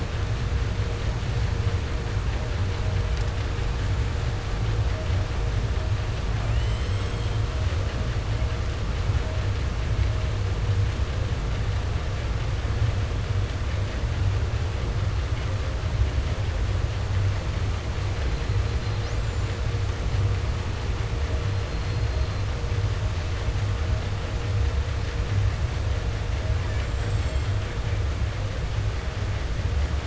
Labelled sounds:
6.2	7.7	killer whale, southern resident, J pod, call S44, 0.25 to 8.0 kHz
18.1	19.9	killer whale, southern resident, 0.10 to 8.0 kHz
21.3	22.7	killer whale, 1.3 to 8.0 kHz
26.3	28.0	killer whale, 0.10 to 8.0 kHz

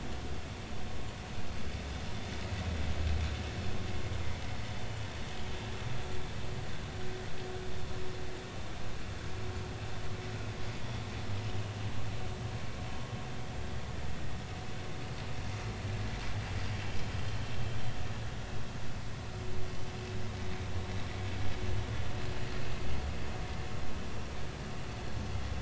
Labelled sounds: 16.6	16.8	vessel noise, 4.5 to 4.8 kHz

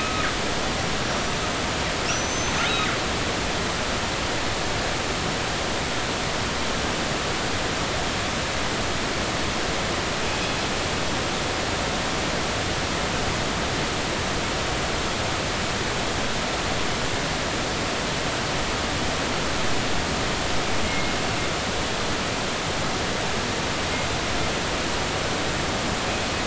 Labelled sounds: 0.0	1.3	killer whale, northern resident, G clan, 1.2 to 5.9 kHz
2.1	2.7	killer whale, northern resident, G clan, 5.3 to 6.3 kHz
20.8	21.1	killer whale, northern resident, G clan, 2.1 to 2.2 kHz

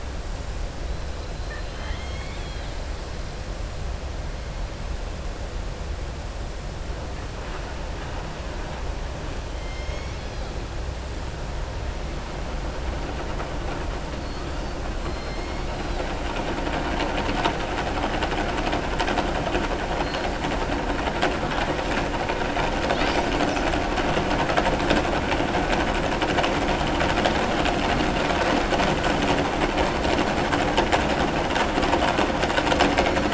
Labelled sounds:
1.4	2.8	killer whale, southern resident, 0.91 to 4.5 kHz

